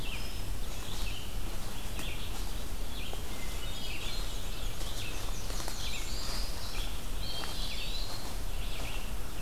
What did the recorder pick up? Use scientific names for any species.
Vireo olivaceus, Catharus guttatus, Mniotilta varia, Setophaga caerulescens, Contopus virens